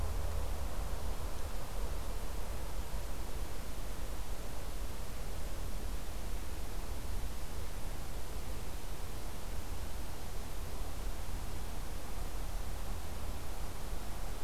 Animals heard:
forest ambience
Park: Acadia National Park